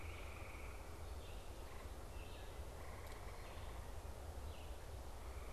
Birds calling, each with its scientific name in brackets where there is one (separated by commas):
Red-eyed Vireo (Vireo olivaceus)